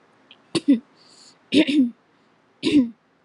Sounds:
Throat clearing